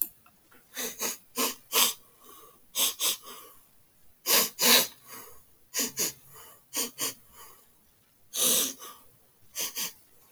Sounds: Sniff